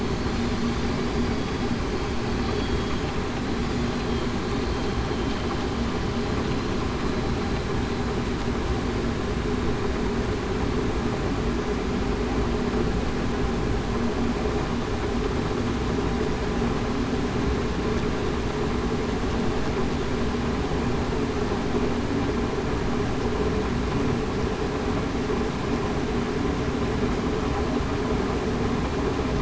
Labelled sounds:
2.5	2.9	vessel noise, 3.3 to 3.4 kHz

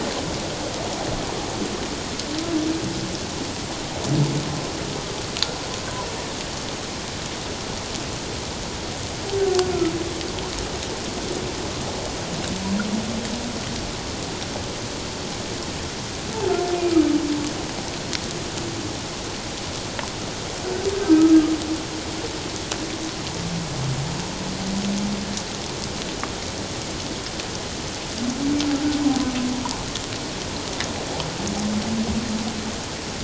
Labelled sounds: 21.0	21.3	humpback whale, 1.2 to 1.3 kHz

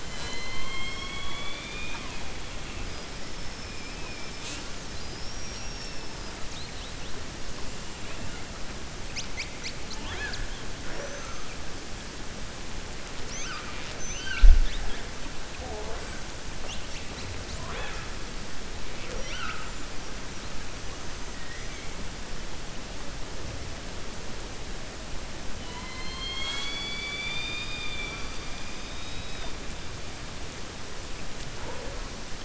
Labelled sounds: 0.0	2.2	killer whale, 0.60 to 7.7 kHz
21.4	21.9	killer whale, 1.8 to 3.2 kHz

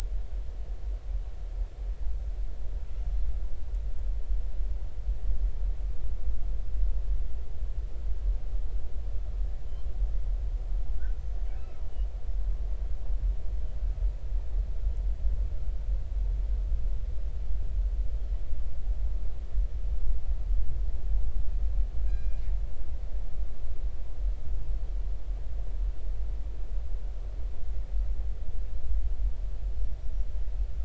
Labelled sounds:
11.2	11.4	killer whale, northern resident, 6.1 to 6.3 kHz
22.0	22.4	killer whale, northern resident, 2.4 to 7.4 kHz

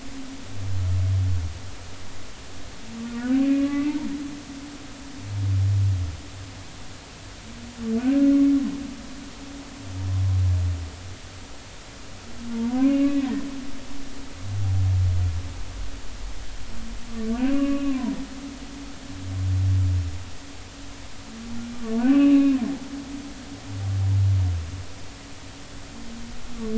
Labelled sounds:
3.2	3.9	humpback whale, 1.1 to 2.1 kHz
8.0	8.2	humpback whale, 1.4 to 1.7 kHz
12.5	13.3	humpback whale, 0.86 to 2.7 kHz
17.3	18.1	humpback whale, 0.90 to 2.9 kHz
22.0	22.6	humpback whale, 1.1 to 2.9 kHz

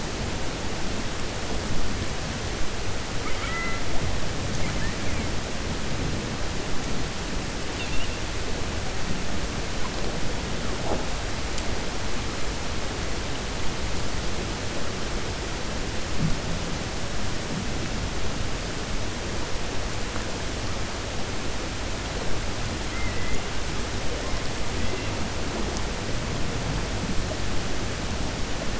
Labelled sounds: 3.1	3.8	killer whale, 1.2 to 3.3 kHz
22.8	23.4	killer whale, 1.3 to 2.2 kHz

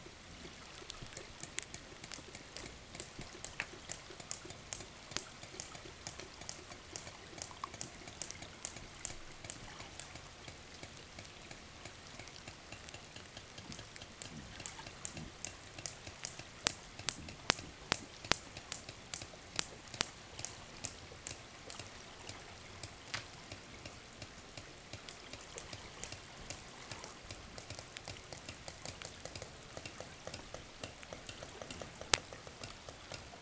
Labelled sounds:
0.9	33.3	killer whale, 0 to 8.0 kHz

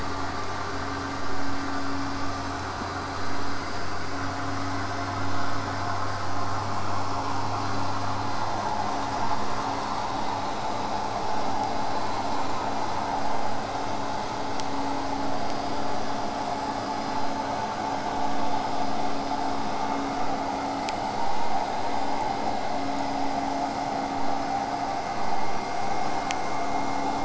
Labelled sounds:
10.5	13.9	killer whale, southern resident, J pod, 7.9 to 8.0 kHz

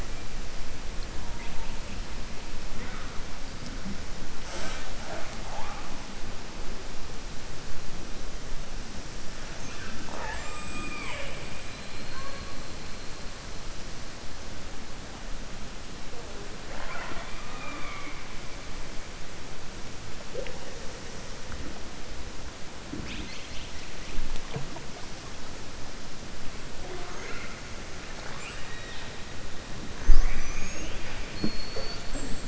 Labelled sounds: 28.1	29.1	killer whale, southern resident, 0.86 to 4.1 kHz
31.2	32.0	killer whale, southern resident, 4.3 to 4.8 kHz

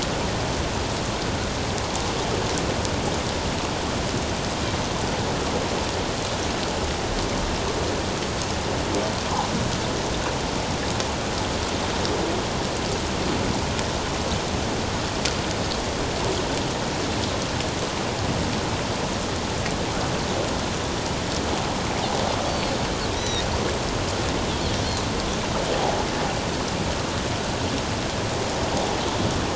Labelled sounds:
22.5	23.4	Pacific white-sided dolphin, 1.8 to 6.0 kHz

